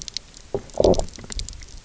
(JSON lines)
{"label": "biophony, low growl", "recorder": "SoundTrap 300"}